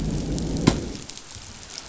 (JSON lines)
{"label": "biophony, growl", "recorder": "SoundTrap 500"}